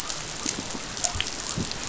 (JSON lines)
{"label": "biophony", "recorder": "SoundTrap 500"}